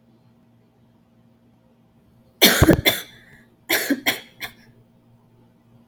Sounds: Cough